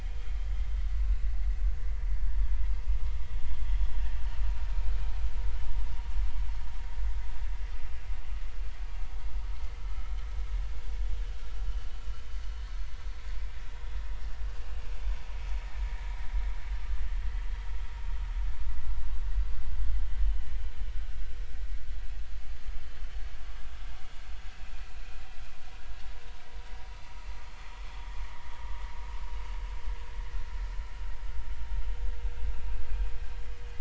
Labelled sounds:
20.3	20.5	vessel noise, 2.8 to 3.1 kHz
22.7	23.0	vessel noise, 3.0 to 3.1 kHz
25.0	25.2	vessel noise, 2.4 to 2.5 kHz

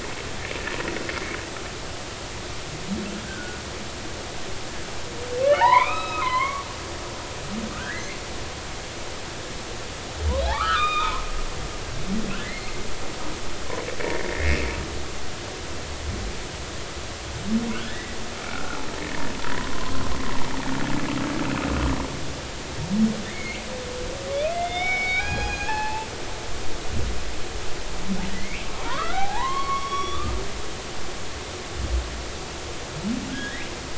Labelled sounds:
3.2	3.6	humpback whale, 1.4 to 1.7 kHz
5.4	6.6	humpback whale, 0.80 to 5.2 kHz
7.7	8.1	humpback whale, 1.2 to 2.1 kHz
10.5	11.2	humpback whale, 0.86 to 3.8 kHz
12.4	12.8	humpback whale, 1.7 to 4.3 kHz
14.0	14.6	humpback whale, 1.7 to 2.3 kHz
17.7	18.8	humpback whale, 1.2 to 2.0 kHz
19.5	20.0	humpback whale, 0.96 to 1.1 kHz
23.3	23.6	humpback whale, 1.7 to 2.4 kHz
24.3	26.1	humpback whale, 0.80 to 6.7 kHz
28.3	30.3	humpback whale, 0.80 to 5.8 kHz
33.3	33.7	humpback whale, 1.5 to 3.4 kHz

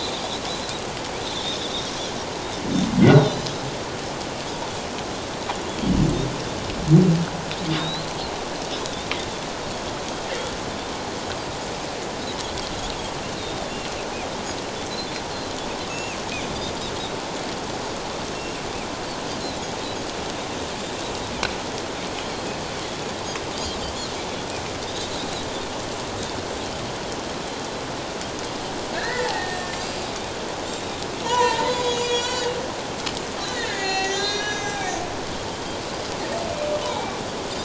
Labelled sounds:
1.3	1.6	Pacific white-sided dolphin, 3.3 to 4.0 kHz
3.2	3.5	Pacific white-sided dolphin, 3.9 to 4.2 kHz
7.8	8.1	Pacific white-sided dolphin, 3.6 to 4.3 kHz
13.4	13.8	Pacific white-sided dolphin, 3.4 to 4.1 kHz
15.9	16.2	Pacific white-sided dolphin, 2.3 to 2.8 kHz
28.9	30.0	humpback whale, 1.5 to 7.3 kHz
31.2	32.5	humpback whale, 0.88 to 7.9 kHz
33.4	34.8	humpback whale, 0.78 to 7.1 kHz
36.8	37.2	humpback whale, 0.78 to 2.4 kHz

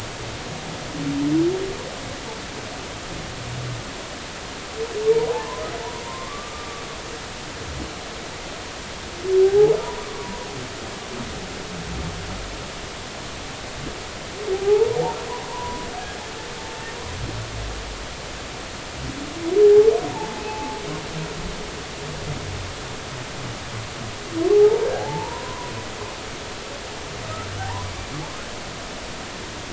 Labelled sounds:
5.2	5.6	humpback whale, 0.80 to 1.1 kHz
6.0	6.8	humpback whale, 0.90 to 1.2 kHz
9.4	9.7	humpback whale, 0.80 to 0.99 kHz
14.5	15.9	humpback whale, 0.80 to 1.1 kHz
19.6	20.8	humpback whale, 0.80 to 0.99 kHz
24.5	25.7	humpback whale, 0.80 to 1.1 kHz
27.6	27.9	humpback whale, 0.80 to 1.1 kHz

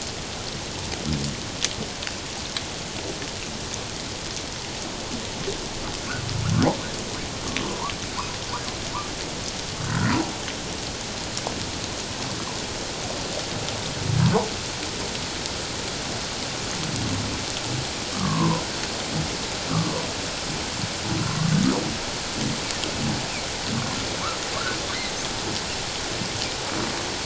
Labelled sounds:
7.6	7.9	humpback whale, 0.88 to 1.2 kHz
9.8	10.2	humpback whale, 1.2 to 1.6 kHz
18.1	18.6	humpback whale, 0.91 to 1.3 kHz

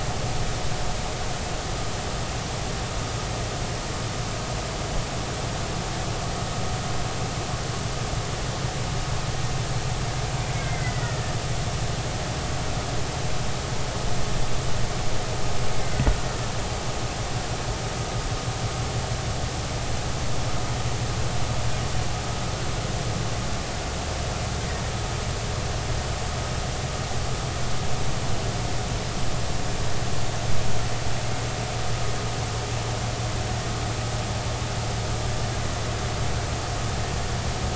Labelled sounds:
10.5	11.3	killer whale, Bigg's (transient), 1.7 to 2.2 kHz

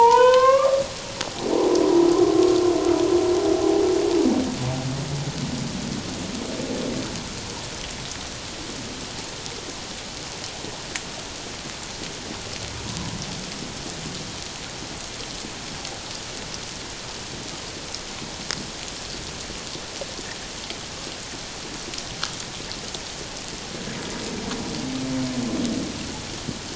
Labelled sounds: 1.2	1.5	humpback whale, 0.78 to 0.84 kHz

